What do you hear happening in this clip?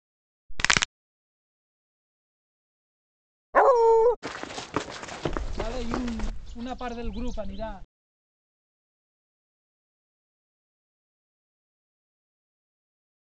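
At the start, cracking is audible. About 4 seconds in, you can hear a dog. Next, at about 4 seconds, someone runs. While that goes on, at about 5 seconds, bird vocalization is heard.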